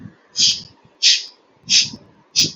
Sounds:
Sniff